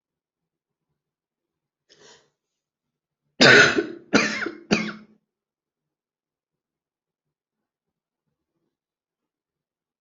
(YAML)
expert_labels:
- quality: good
  cough_type: dry
  dyspnea: false
  wheezing: false
  stridor: false
  choking: false
  congestion: false
  nothing: true
  diagnosis: COVID-19
  severity: mild
age: 55
gender: female
respiratory_condition: true
fever_muscle_pain: false
status: symptomatic